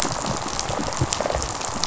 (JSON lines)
{"label": "biophony, rattle response", "recorder": "SoundTrap 500"}